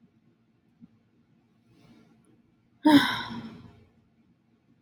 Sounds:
Sigh